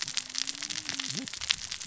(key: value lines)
label: biophony, cascading saw
recorder: SoundTrap 600 or HydroMoth